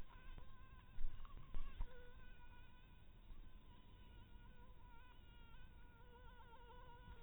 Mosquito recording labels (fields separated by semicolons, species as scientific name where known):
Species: mosquito; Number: one; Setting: cup